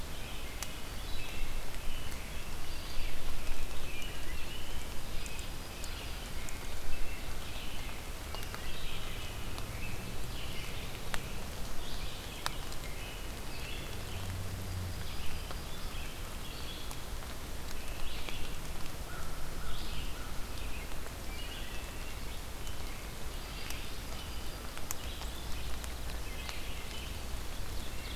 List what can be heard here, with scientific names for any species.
Turdus migratorius, Vireo olivaceus, Hylocichla mustelina, Setophaga coronata, Corvus brachyrhynchos, Seiurus aurocapilla